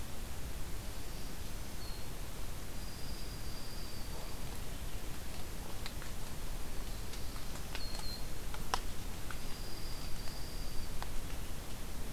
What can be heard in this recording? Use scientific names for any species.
Setophaga virens, Junco hyemalis, Setophaga caerulescens